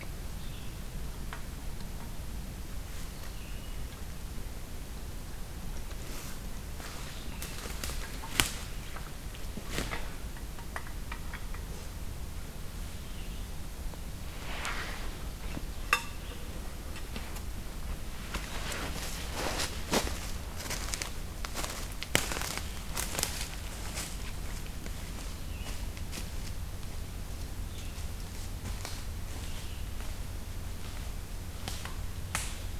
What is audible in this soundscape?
Red-eyed Vireo